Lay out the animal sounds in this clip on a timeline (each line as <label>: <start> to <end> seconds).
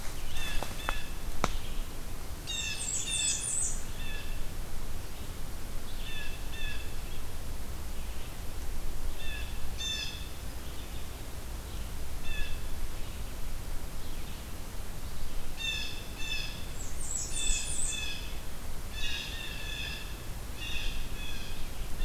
Red-eyed Vireo (Vireo olivaceus): 0.0 to 22.0 seconds
Blue Jay (Cyanocitta cristata): 0.3 to 1.1 seconds
Blackburnian Warbler (Setophaga fusca): 2.2 to 3.9 seconds
Blue Jay (Cyanocitta cristata): 2.4 to 4.4 seconds
Blue Jay (Cyanocitta cristata): 5.9 to 6.9 seconds
Blue Jay (Cyanocitta cristata): 9.2 to 10.3 seconds
Blue Jay (Cyanocitta cristata): 12.1 to 12.7 seconds
Blue Jay (Cyanocitta cristata): 15.5 to 16.6 seconds
Blackburnian Warbler (Setophaga fusca): 16.6 to 18.1 seconds
Blue Jay (Cyanocitta cristata): 17.3 to 18.4 seconds
Blue Jay (Cyanocitta cristata): 18.9 to 20.2 seconds
Blue Jay (Cyanocitta cristata): 20.6 to 22.0 seconds